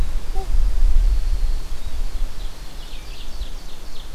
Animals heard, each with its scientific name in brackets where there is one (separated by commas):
Winter Wren (Troglodytes hiemalis), Ovenbird (Seiurus aurocapilla)